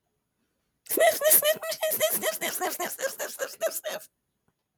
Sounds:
Sniff